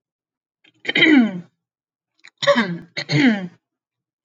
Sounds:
Throat clearing